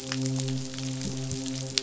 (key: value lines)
label: biophony, midshipman
recorder: SoundTrap 500